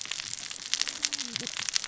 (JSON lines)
{"label": "biophony, cascading saw", "recorder": "SoundTrap 600 or HydroMoth"}